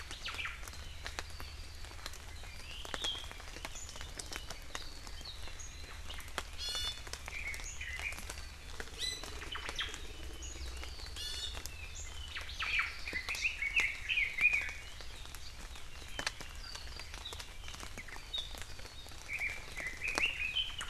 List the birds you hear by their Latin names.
Myadestes obscurus, Drepanis coccinea, Leiothrix lutea